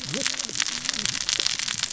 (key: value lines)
label: biophony, cascading saw
recorder: SoundTrap 600 or HydroMoth